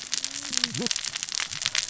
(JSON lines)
{"label": "biophony, cascading saw", "recorder": "SoundTrap 600 or HydroMoth"}